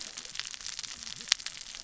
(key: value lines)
label: biophony, cascading saw
recorder: SoundTrap 600 or HydroMoth